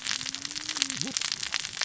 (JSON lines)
{"label": "biophony, cascading saw", "recorder": "SoundTrap 600 or HydroMoth"}